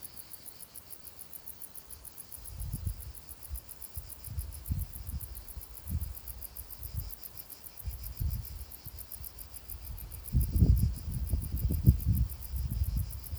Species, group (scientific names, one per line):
Decticus verrucivorus
Orthoptera